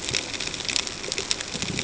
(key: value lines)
label: ambient
recorder: HydroMoth